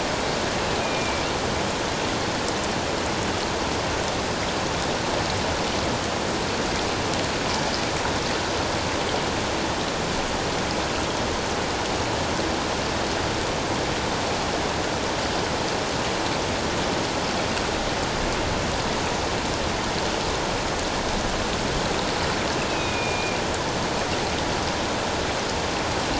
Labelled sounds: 22.6	23.4	killer whale, northern resident, A clan, AA subclan, call N04, 2.2 to 2.7 kHz

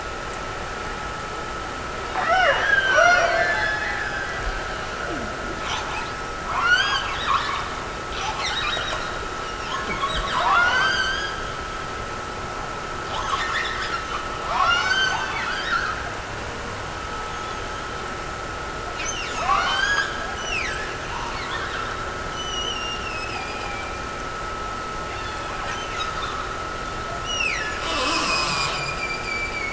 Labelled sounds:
2.1	4.4	killer whale, Bigg's (transient), Gulf of Alaska transient, 0.40 to 5.1 kHz
20.3	22.0	killer whale, Bigg's (transient), Gulf of Alaska transient, 1.5 to 6.2 kHz
22.3	24.4	killer whale, Bigg's (transient), Gulf of Alaska transient, 2.2 to 6.1 kHz
27.2	27.9	killer whale, Bigg's (transient), Gulf of Alaska transient, 1.6 to 6.1 kHz

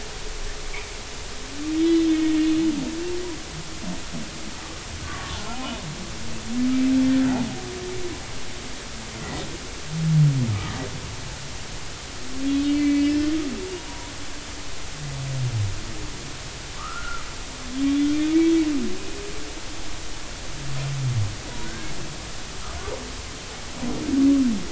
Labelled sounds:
1.8	2.4	humpback whale, 1.8 to 3.7 kHz
5.0	5.6	humpback whale, 1.1 to 1.5 kHz
7.0	7.3	humpback whale, 3.4 to 3.5 kHz
12.5	13.1	humpback whale, 2.0 to 4.4 kHz
16.8	17.3	humpback whale, 0.96 to 1.5 kHz
18.0	18.4	humpback whale, 3.1 to 3.5 kHz
22.6	22.9	humpback whale, 1.4 to 1.7 kHz

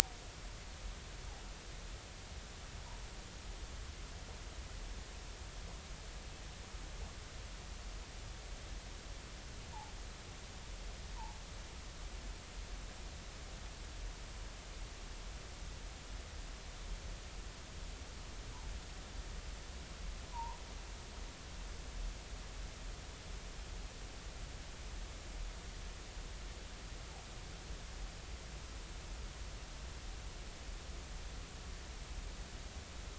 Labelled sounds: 20.3	20.6	humpback whale, 0.86 to 1.1 kHz

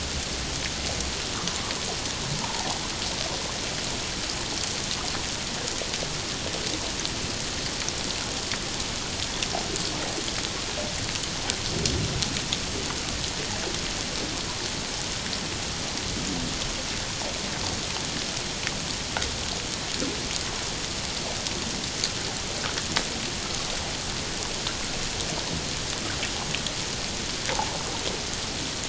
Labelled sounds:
2.4	2.8	water noise, 0.78 to 1.1 kHz

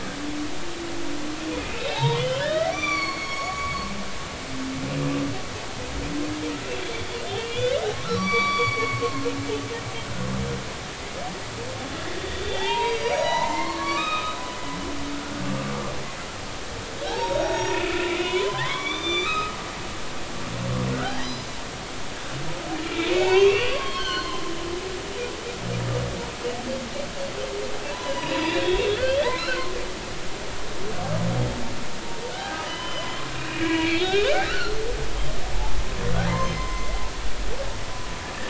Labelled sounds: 1.7	4.6	humpback whale, 0.80 to 6.0 kHz
7.4	9.3	humpback whale, 1.0 to 5.8 kHz
12.3	15.4	humpback whale, 0.80 to 6.7 kHz
17.1	19.6	humpback whale, 0.80 to 6.8 kHz
20.9	21.5	humpback whale, 1.2 to 6.1 kHz
22.8	24.4	humpback whale, 0.80 to 4.4 kHz
27.9	29.7	humpback whale, 0.90 to 6.1 kHz
32.3	34.8	humpback whale, 0.96 to 5.1 kHz
36.2	37.0	humpback whale, 0.80 to 6.3 kHz

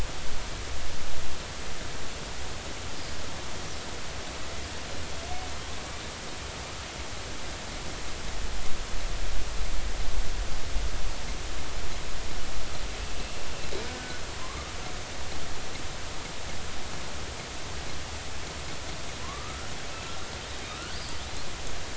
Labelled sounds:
13.2	14.7	killer whale, northern resident, 0.99 to 2.8 kHz
19.2	19.7	killer whale, northern resident, 0.99 to 1.5 kHz
20.7	21.0	killer whale, northern resident, 1.2 to 1.6 kHz

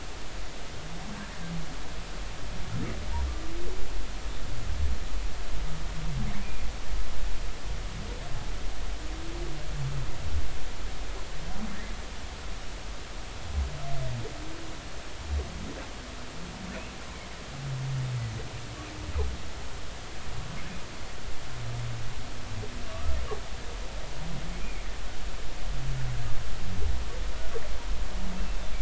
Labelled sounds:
22.9	23.2	humpback whale, 1.1 to 1.3 kHz
24.6	24.9	humpback whale, 2.1 to 2.5 kHz

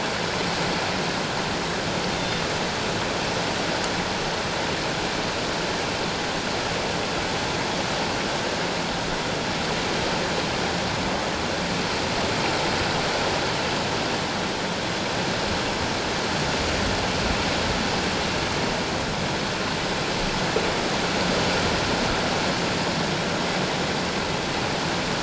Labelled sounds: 2.1	2.4	killer whale, northern resident, G clan, 3.5 to 3.7 kHz

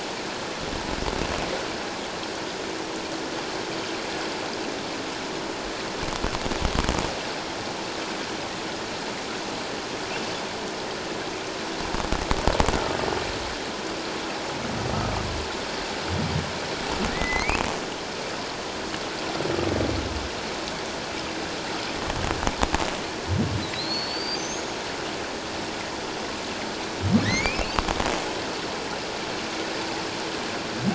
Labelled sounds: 17.1	17.6	humpback whale, 1.8 to 2.8 kHz
23.7	24.8	humpback whale, 3.8 to 6.8 kHz
27.2	27.8	humpback whale, 1.7 to 2.9 kHz

